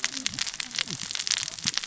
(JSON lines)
{"label": "biophony, cascading saw", "recorder": "SoundTrap 600 or HydroMoth"}